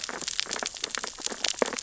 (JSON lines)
{"label": "biophony, sea urchins (Echinidae)", "recorder": "SoundTrap 600 or HydroMoth"}